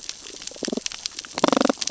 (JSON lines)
{"label": "biophony, damselfish", "recorder": "SoundTrap 600 or HydroMoth"}